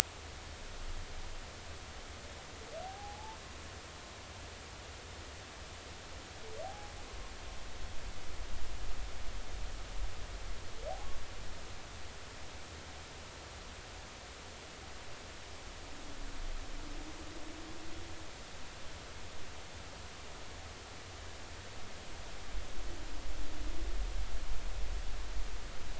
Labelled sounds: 2.8	3.4	humpback whale, 0.80 to 0.96 kHz
6.6	6.9	humpback whale, 0.80 to 0.90 kHz

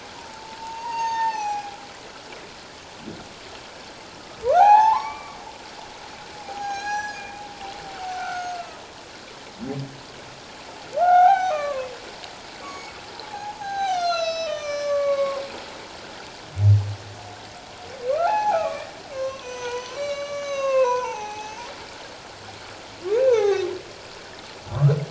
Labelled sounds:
0.6	1.8	humpback whale, 0.78 to 6.7 kHz
4.5	5.4	humpback whale, 0.78 to 4.4 kHz
6.4	7.4	humpback whale, 0.78 to 6.7 kHz
8.1	8.5	humpback whale, 1.2 to 1.6 kHz
10.9	11.9	humpback whale, 0.78 to 4.0 kHz
12.6	12.9	humpback whale, 2.2 to 6.8 kHz
13.3	15.4	humpback whale, 0.78 to 7.8 kHz
18.2	21.7	humpback whale, 0.78 to 6.7 kHz
23.2	23.7	humpback whale, 0.78 to 6.4 kHz
24.7	25.0	humpback whale, 0.97 to 1.5 kHz

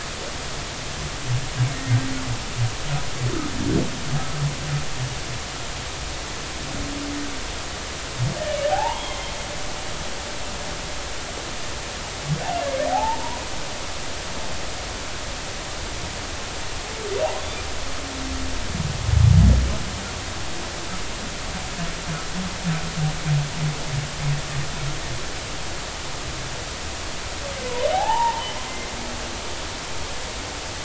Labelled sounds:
8.7	9.3	humpback whale, 0.80 to 3.4 kHz
12.9	13.4	humpback whale, 0.80 to 1.1 kHz
27.9	28.9	humpback whale, 0.80 to 2.1 kHz

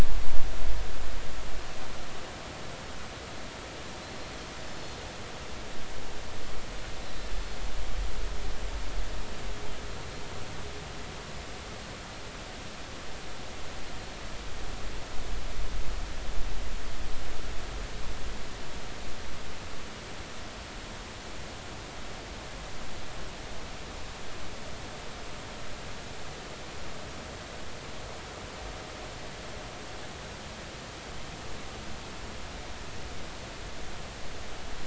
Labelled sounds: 7.0	7.3	Pacific white-sided dolphin, 3.9 to 4.1 kHz

